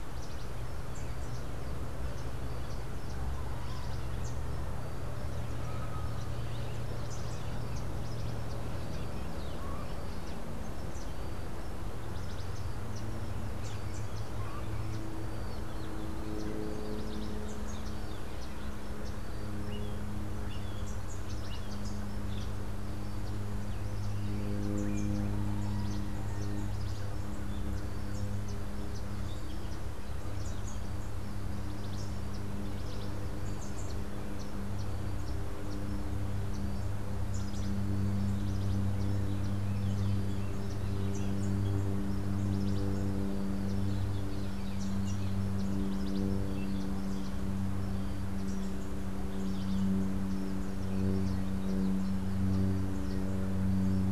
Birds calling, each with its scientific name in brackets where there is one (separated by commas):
Melodious Blackbird (Dives dives), Cabanis's Wren (Cantorchilus modestus), Rufous-capped Warbler (Basileuterus rufifrons)